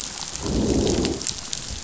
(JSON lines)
{"label": "biophony, growl", "recorder": "SoundTrap 500"}